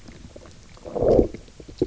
{"label": "biophony, low growl", "recorder": "SoundTrap 300"}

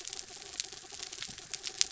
{"label": "anthrophony, mechanical", "recorder": "SoundTrap 300"}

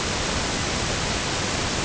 {"label": "ambient", "recorder": "HydroMoth"}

